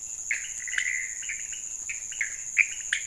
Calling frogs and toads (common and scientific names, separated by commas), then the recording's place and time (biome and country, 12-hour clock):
pointedbelly frog (Leptodactylus podicipinus), Pithecopus azureus
Cerrado, Brazil, 12:15am